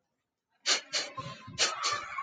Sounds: Sniff